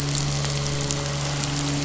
{"label": "biophony, midshipman", "recorder": "SoundTrap 500"}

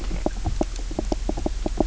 {"label": "biophony, knock croak", "recorder": "SoundTrap 300"}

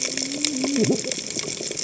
{"label": "biophony, cascading saw", "recorder": "HydroMoth"}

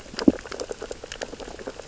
{"label": "biophony, sea urchins (Echinidae)", "recorder": "SoundTrap 600 or HydroMoth"}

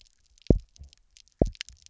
{"label": "biophony, double pulse", "recorder": "SoundTrap 300"}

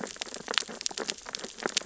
{"label": "biophony, sea urchins (Echinidae)", "recorder": "SoundTrap 600 or HydroMoth"}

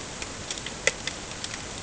{"label": "ambient", "recorder": "HydroMoth"}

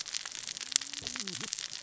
{"label": "biophony, cascading saw", "recorder": "SoundTrap 600 or HydroMoth"}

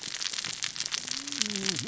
{"label": "biophony, cascading saw", "recorder": "SoundTrap 600 or HydroMoth"}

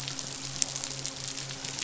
{"label": "biophony, midshipman", "recorder": "SoundTrap 500"}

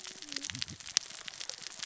{"label": "biophony, cascading saw", "recorder": "SoundTrap 600 or HydroMoth"}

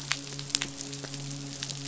{"label": "biophony, midshipman", "recorder": "SoundTrap 500"}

